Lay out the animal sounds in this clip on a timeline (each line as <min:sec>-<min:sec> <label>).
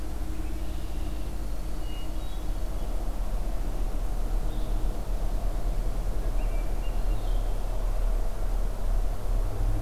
0:00.3-0:01.4 Red-winged Blackbird (Agelaius phoeniceus)
0:01.5-0:02.7 Hermit Thrush (Catharus guttatus)
0:06.4-0:07.5 Hermit Thrush (Catharus guttatus)